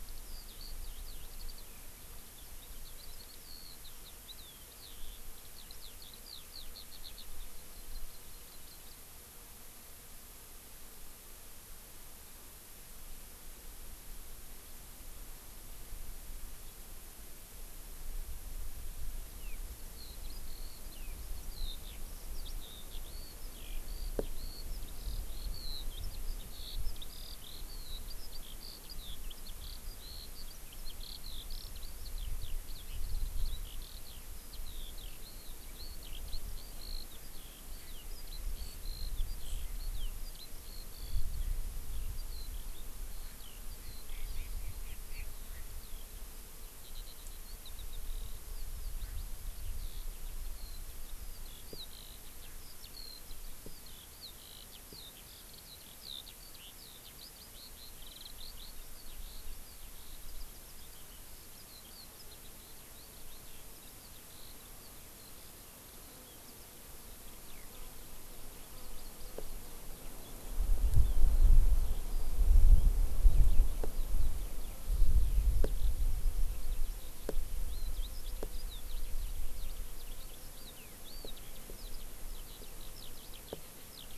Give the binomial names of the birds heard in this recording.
Alauda arvensis, Chlorodrepanis virens